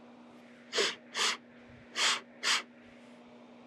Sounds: Sniff